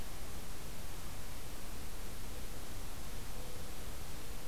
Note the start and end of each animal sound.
2.1s-4.5s: Mourning Dove (Zenaida macroura)

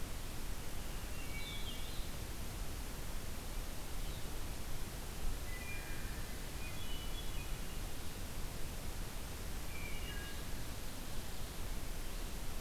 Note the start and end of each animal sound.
0.0s-4.4s: Red-eyed Vireo (Vireo olivaceus)
0.9s-1.9s: Wood Thrush (Hylocichla mustelina)
5.4s-6.3s: Wood Thrush (Hylocichla mustelina)
6.3s-7.9s: Hermit Thrush (Catharus guttatus)
9.6s-10.4s: Wood Thrush (Hylocichla mustelina)

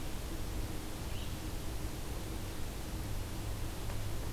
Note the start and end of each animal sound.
1.0s-1.4s: Red-eyed Vireo (Vireo olivaceus)

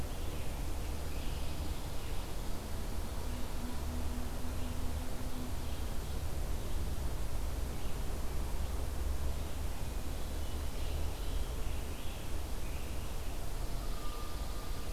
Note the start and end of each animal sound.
0.7s-2.4s: Pine Warbler (Setophaga pinus)
10.2s-13.5s: Scarlet Tanager (Piranga olivacea)
13.5s-14.9s: Pine Warbler (Setophaga pinus)

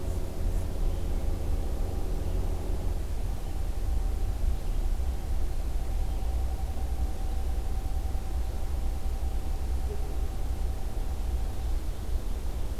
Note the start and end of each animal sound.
0.3s-1.5s: Hermit Thrush (Catharus guttatus)

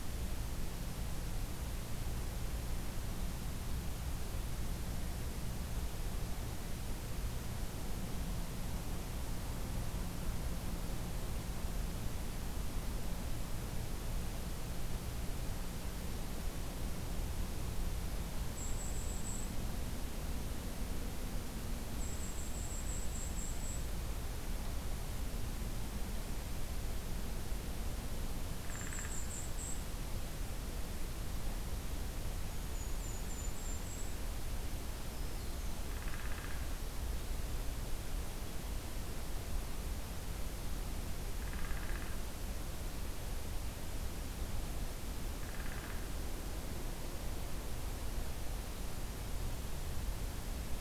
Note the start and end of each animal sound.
18.3s-19.6s: Golden-crowned Kinglet (Regulus satrapa)
21.8s-23.9s: Golden-crowned Kinglet (Regulus satrapa)
28.6s-29.2s: Downy Woodpecker (Dryobates pubescens)
28.6s-29.9s: Golden-crowned Kinglet (Regulus satrapa)
32.4s-34.3s: Golden-crowned Kinglet (Regulus satrapa)
35.0s-35.8s: Black-throated Green Warbler (Setophaga virens)
35.8s-36.6s: Downy Woodpecker (Dryobates pubescens)
41.3s-42.2s: Downy Woodpecker (Dryobates pubescens)
45.2s-46.1s: Downy Woodpecker (Dryobates pubescens)

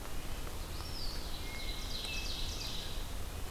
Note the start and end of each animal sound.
0.0s-3.5s: Red-eyed Vireo (Vireo olivaceus)
0.4s-1.5s: Eastern Wood-Pewee (Contopus virens)
1.0s-3.1s: Ovenbird (Seiurus aurocapilla)
1.4s-2.8s: Hermit Thrush (Catharus guttatus)

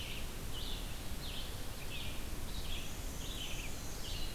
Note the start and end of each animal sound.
0.0s-4.3s: Red-eyed Vireo (Vireo olivaceus)
2.5s-4.3s: Black-and-white Warbler (Mniotilta varia)
3.7s-4.3s: Black-throated Blue Warbler (Setophaga caerulescens)

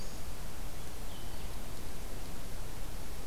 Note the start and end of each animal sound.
0.0s-3.3s: Blue-headed Vireo (Vireo solitarius)

